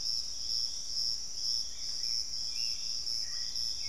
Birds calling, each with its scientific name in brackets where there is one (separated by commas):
Piratic Flycatcher (Legatus leucophaius), Hauxwell's Thrush (Turdus hauxwelli)